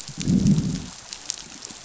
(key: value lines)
label: biophony, growl
recorder: SoundTrap 500